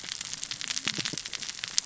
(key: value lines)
label: biophony, cascading saw
recorder: SoundTrap 600 or HydroMoth